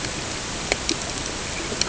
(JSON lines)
{"label": "ambient", "recorder": "HydroMoth"}